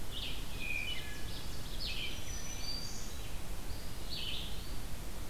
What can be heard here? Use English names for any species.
Red-eyed Vireo, Ovenbird, Wood Thrush, Black-throated Green Warbler